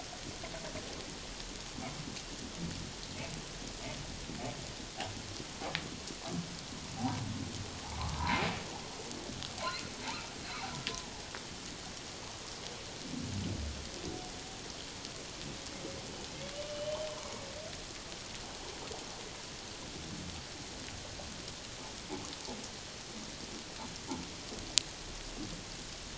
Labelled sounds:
7.0	7.2	humpback whale, 0.78 to 1.0 kHz
8.1	8.4	humpback whale, 0.88 to 1.1 kHz
16.7	17.5	humpback whale, 2.2 to 3.2 kHz

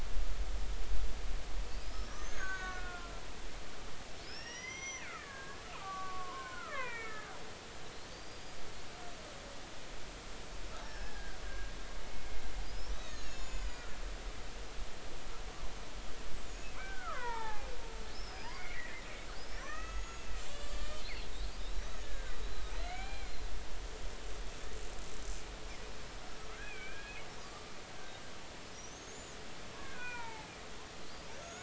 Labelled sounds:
1.7	3.2	killer whale, Bigg's (transient), 1.1 to 6.6 kHz
4.2	7.3	killer whale, Bigg's (transient), 0.90 to 6.0 kHz
8.1	8.6	killer whale, Bigg's (transient), 4.4 to 4.9 kHz
10.8	11.7	killer whale, Bigg's (transient), 1.5 to 5.7 kHz
12.9	13.9	killer whale, Bigg's (transient), 1.7 to 7.1 kHz
16.8	17.7	killer whale, Bigg's (transient), 0.80 to 2.5 kHz
18.1	19.1	killer whale, Bigg's (transient), 1.7 to 5.4 kHz
19.4	23.3	killer whale, Bigg's (transient), 0.80 to 6.8 kHz
26.6	27.7	killer whale, Bigg's (transient), 1.1 to 2.6 kHz
28.9	29.2	killer whale, Bigg's (transient), 6.3 to 6.5 kHz
29.8	30.5	killer whale, Bigg's (transient), 0.80 to 2.6 kHz
31.4	31.6	killer whale, Bigg's (transient), 1.3 to 6.9 kHz

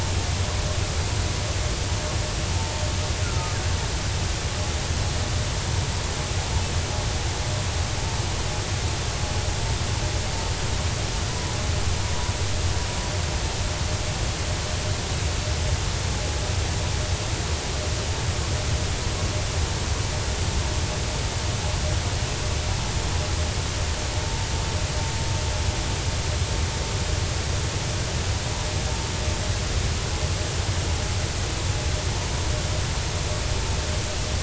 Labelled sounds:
3.2	3.6	killer whale, 1.2 to 1.5 kHz
11.3	11.5	vessel noise, 0.93 to 1.1 kHz

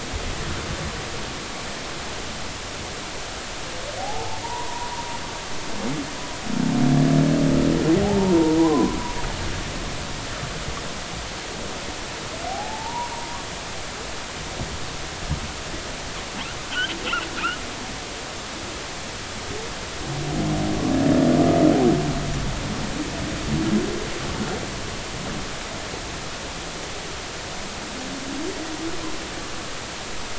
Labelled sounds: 4.0	4.9	humpback whale, 0.80 to 1.1 kHz
8.6	9.0	humpback whale, 0.93 to 1.1 kHz
12.4	13.1	humpback whale, 0.80 to 1.1 kHz

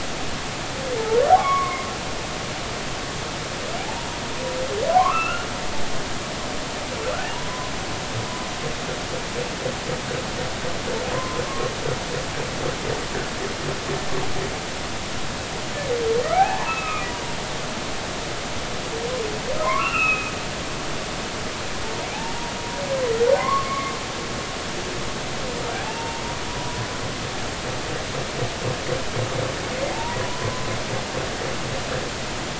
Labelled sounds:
1.0	1.9	humpback whale, 0.83 to 2.3 kHz
3.8	4.1	humpback whale, 0.80 to 0.99 kHz
4.9	5.5	humpback whale, 0.80 to 2.9 kHz
7.3	7.7	humpback whale, 0.90 to 1.1 kHz
11.1	11.4	humpback whale, 0.90 to 1.1 kHz
16.3	17.1	humpback whale, 0.80 to 2.7 kHz
19.6	20.3	humpback whale, 0.93 to 3.0 kHz
23.4	23.9	humpback whale, 0.93 to 2.3 kHz
26.0	26.9	humpback whale, 0.86 to 1.1 kHz
29.9	30.2	humpback whale, 0.83 to 0.99 kHz

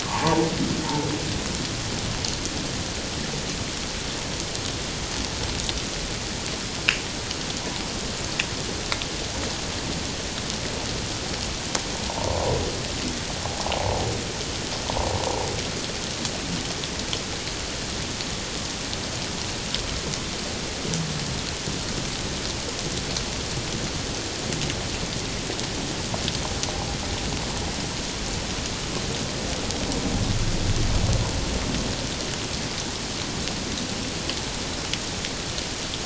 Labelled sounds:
0.0	0.4	humpback whale, 0.81 to 1.2 kHz
12.1	12.4	humpback whale, 0.78 to 1.1 kHz
13.4	14.0	humpback whale, 0.78 to 1.1 kHz

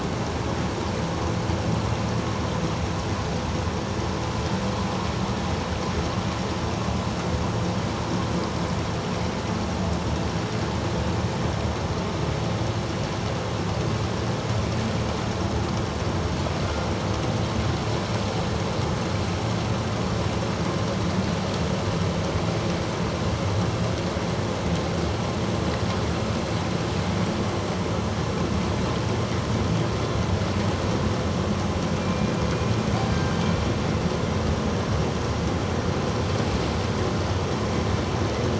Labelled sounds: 32.0	32.3	killer whale, northern resident, G clan, 2.3 to 2.5 kHz
33.1	33.4	killer whale, northern resident, G clan, 1.5 to 1.6 kHz

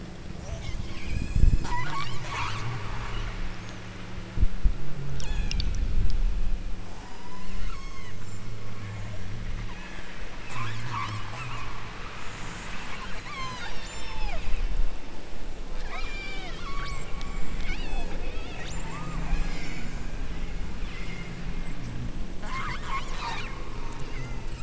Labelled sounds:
0.4	2.7	killer whale, southern Alaska resident, 0.43 to 8.0 kHz
5.1	5.7	killer whale, southern Alaska resident, 0.55 to 7.9 kHz
6.7	8.2	killer whale, southern Alaska resident, 0.50 to 8.0 kHz
8.5	9.3	killer whale, southern Alaska resident, 0.75 to 2.3 kHz
9.6	10.3	killer whale, southern Alaska resident, 1.4 to 7.9 kHz
13.2	14.5	killer whale, southern Alaska resident, 0.50 to 8.0 kHz
15.8	20.0	killer whale, southern Alaska resident, 0.32 to 8.0 kHz
20.8	21.8	killer whale, southern Alaska resident, 0.94 to 5.6 kHz
24.0	24.5	killer whale, southern Alaska resident, 0.98 to 8.0 kHz

